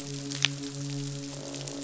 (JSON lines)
{"label": "biophony, midshipman", "recorder": "SoundTrap 500"}